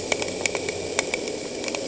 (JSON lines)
{"label": "anthrophony, boat engine", "recorder": "HydroMoth"}